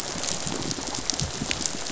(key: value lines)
label: biophony, rattle response
recorder: SoundTrap 500